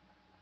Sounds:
Cough